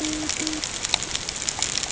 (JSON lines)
{"label": "ambient", "recorder": "HydroMoth"}